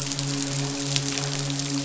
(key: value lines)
label: biophony, midshipman
recorder: SoundTrap 500